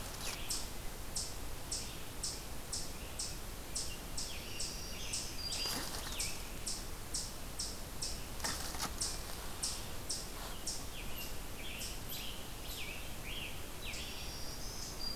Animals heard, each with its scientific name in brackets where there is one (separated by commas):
Black-throated Green Warbler (Setophaga virens), Eastern Chipmunk (Tamias striatus), Scarlet Tanager (Piranga olivacea), Red-eyed Vireo (Vireo olivaceus)